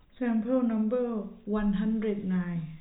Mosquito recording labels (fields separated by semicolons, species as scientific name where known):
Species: no mosquito; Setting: cup